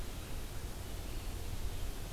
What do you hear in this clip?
Red-eyed Vireo